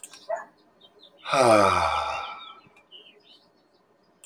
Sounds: Sigh